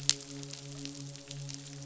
{"label": "biophony, midshipman", "recorder": "SoundTrap 500"}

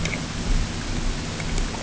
{"label": "ambient", "recorder": "HydroMoth"}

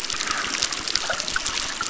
{"label": "biophony, crackle", "recorder": "SoundTrap 600"}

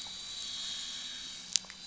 {"label": "anthrophony, boat engine", "recorder": "SoundTrap 500"}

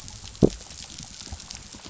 {"label": "biophony", "recorder": "SoundTrap 500"}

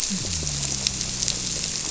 {"label": "biophony", "recorder": "SoundTrap 300"}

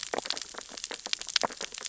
{"label": "biophony, sea urchins (Echinidae)", "recorder": "SoundTrap 600 or HydroMoth"}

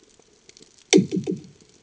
{"label": "anthrophony, bomb", "recorder": "HydroMoth"}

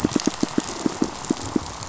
{"label": "biophony, pulse", "recorder": "SoundTrap 500"}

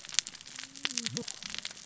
{"label": "biophony, cascading saw", "recorder": "SoundTrap 600 or HydroMoth"}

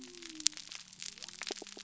{"label": "biophony", "recorder": "SoundTrap 300"}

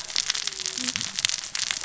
{"label": "biophony, cascading saw", "recorder": "SoundTrap 600 or HydroMoth"}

